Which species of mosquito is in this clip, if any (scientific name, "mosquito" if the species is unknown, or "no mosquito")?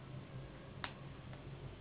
Anopheles gambiae s.s.